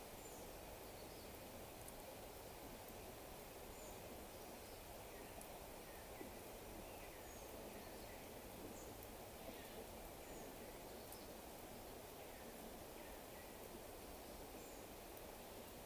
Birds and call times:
African Emerald Cuckoo (Chrysococcyx cupreus): 6.2s, 13.4s

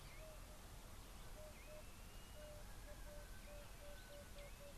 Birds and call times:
Blue-naped Mousebird (Urocolius macrourus): 2.2s
Emerald-spotted Wood-Dove (Turtur chalcospilos): 3.6s

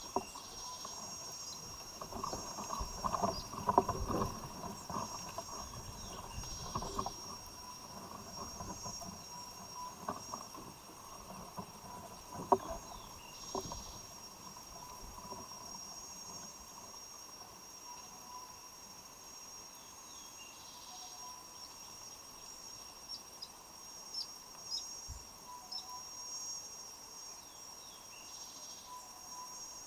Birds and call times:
Tropical Boubou (Laniarius major): 9.8s, 25.6s
Cinnamon-chested Bee-eater (Merops oreobates): 24.2s

